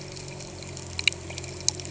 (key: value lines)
label: anthrophony, boat engine
recorder: HydroMoth